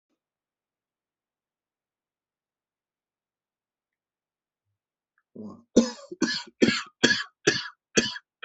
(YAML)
expert_labels:
- quality: good
  cough_type: wet
  dyspnea: false
  wheezing: false
  stridor: false
  choking: false
  congestion: false
  nothing: true
  diagnosis: lower respiratory tract infection
  severity: severe
age: 49
gender: male
respiratory_condition: false
fever_muscle_pain: false
status: healthy